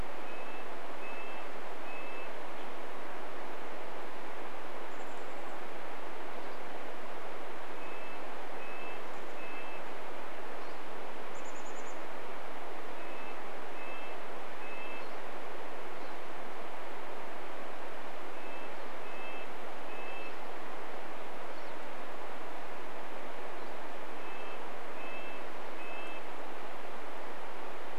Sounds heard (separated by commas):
Chestnut-backed Chickadee call, Red-breasted Nuthatch song, Pine Siskin call